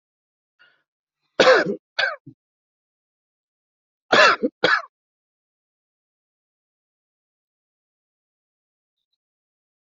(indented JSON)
{
  "expert_labels": [
    {
      "quality": "ok",
      "cough_type": "dry",
      "dyspnea": false,
      "wheezing": false,
      "stridor": false,
      "choking": false,
      "congestion": false,
      "nothing": true,
      "diagnosis": "COVID-19",
      "severity": "mild"
    }
  ],
  "age": 50,
  "gender": "male",
  "respiratory_condition": false,
  "fever_muscle_pain": false,
  "status": "symptomatic"
}